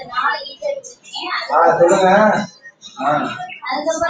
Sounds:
Throat clearing